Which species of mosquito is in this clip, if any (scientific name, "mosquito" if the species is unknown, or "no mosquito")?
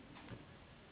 Anopheles gambiae s.s.